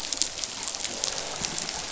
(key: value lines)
label: biophony
recorder: SoundTrap 500